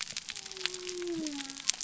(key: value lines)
label: biophony
recorder: SoundTrap 300